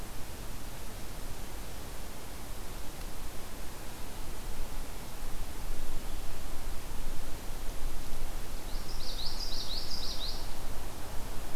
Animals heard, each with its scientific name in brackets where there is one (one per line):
Common Yellowthroat (Geothlypis trichas)